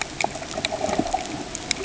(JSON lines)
{"label": "ambient", "recorder": "HydroMoth"}